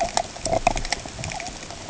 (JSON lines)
{"label": "ambient", "recorder": "HydroMoth"}